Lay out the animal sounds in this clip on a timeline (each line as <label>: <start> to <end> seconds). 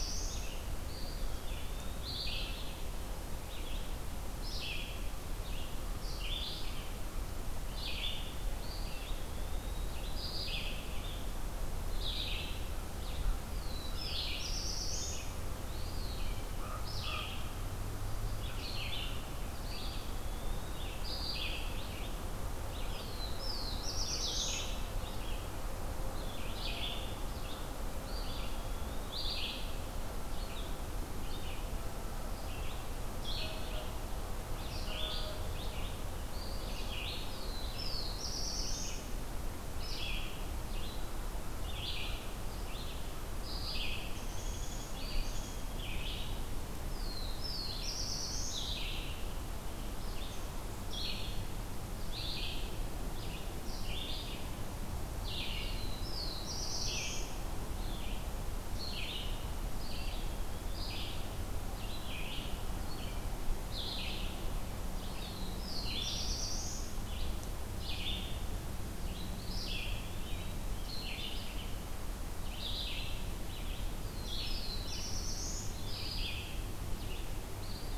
Black-throated Blue Warbler (Setophaga caerulescens): 0.0 to 0.5 seconds
Red-eyed Vireo (Vireo olivaceus): 0.0 to 8.4 seconds
Eastern Wood-Pewee (Contopus virens): 0.6 to 2.0 seconds
Eastern Wood-Pewee (Contopus virens): 8.5 to 9.9 seconds
Red-eyed Vireo (Vireo olivaceus): 10.0 to 66.3 seconds
American Crow (Corvus brachyrhynchos): 12.6 to 14.3 seconds
Black-throated Blue Warbler (Setophaga caerulescens): 13.4 to 15.5 seconds
Eastern Wood-Pewee (Contopus virens): 15.6 to 16.6 seconds
Common Raven (Corvus corax): 16.5 to 17.3 seconds
Eastern Wood-Pewee (Contopus virens): 19.4 to 21.2 seconds
Black-throated Blue Warbler (Setophaga caerulescens): 22.8 to 24.9 seconds
Eastern Wood-Pewee (Contopus virens): 27.9 to 29.1 seconds
Black-throated Blue Warbler (Setophaga caerulescens): 37.3 to 39.1 seconds
Downy Woodpecker (Dryobates pubescens): 44.1 to 45.7 seconds
Eastern Wood-Pewee (Contopus virens): 44.9 to 46.6 seconds
Black-throated Blue Warbler (Setophaga caerulescens): 46.8 to 48.8 seconds
Black-throated Blue Warbler (Setophaga caerulescens): 55.5 to 57.5 seconds
Eastern Wood-Pewee (Contopus virens): 59.8 to 61.0 seconds
Black-throated Blue Warbler (Setophaga caerulescens): 65.0 to 67.1 seconds
Red-eyed Vireo (Vireo olivaceus): 67.0 to 77.9 seconds
Eastern Wood-Pewee (Contopus virens): 69.1 to 71.0 seconds
Black-throated Blue Warbler (Setophaga caerulescens): 73.9 to 76.0 seconds